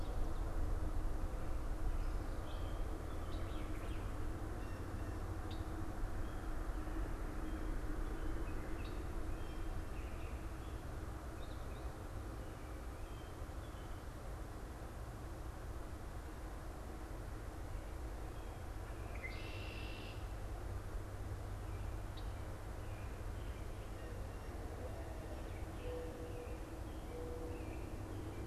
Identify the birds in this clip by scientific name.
unidentified bird, Agelaius phoeniceus, Zenaida macroura